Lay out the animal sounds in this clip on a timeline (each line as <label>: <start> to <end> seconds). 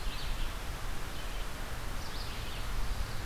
Red-eyed Vireo (Vireo olivaceus): 0.0 to 3.3 seconds